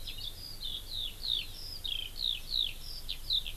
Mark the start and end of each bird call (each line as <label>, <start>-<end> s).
Eurasian Skylark (Alauda arvensis), 0.0-3.6 s
Hawaii Amakihi (Chlorodrepanis virens), 1.3-1.6 s